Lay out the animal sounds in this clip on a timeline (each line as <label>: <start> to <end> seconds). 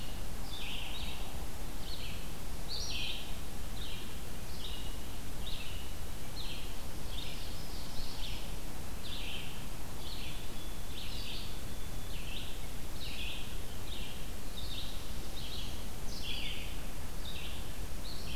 Red-eyed Vireo (Vireo olivaceus): 0.0 to 18.4 seconds
Ovenbird (Seiurus aurocapilla): 7.0 to 8.5 seconds
White-throated Sparrow (Zonotrichia albicollis): 10.1 to 12.3 seconds